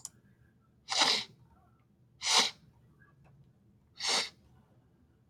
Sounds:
Sniff